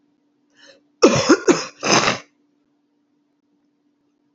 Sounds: Throat clearing